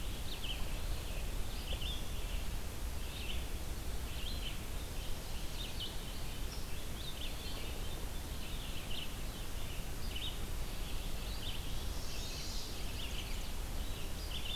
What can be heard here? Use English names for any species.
Red-eyed Vireo, Chestnut-sided Warbler